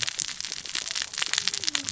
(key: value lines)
label: biophony, cascading saw
recorder: SoundTrap 600 or HydroMoth